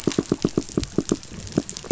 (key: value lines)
label: biophony, knock
recorder: SoundTrap 500